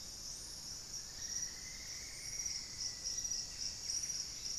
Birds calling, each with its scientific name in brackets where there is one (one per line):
Buff-breasted Wren (Cantorchilus leucotis)
Plumbeous Antbird (Myrmelastes hyperythrus)